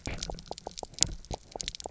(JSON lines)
{"label": "biophony, knock croak", "recorder": "SoundTrap 300"}